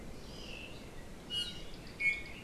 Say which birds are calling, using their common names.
Hawaii Amakihi, Iiwi